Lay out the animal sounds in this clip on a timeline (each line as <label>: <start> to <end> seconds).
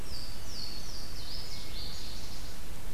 Louisiana Waterthrush (Parkesia motacilla): 0.0 to 2.5 seconds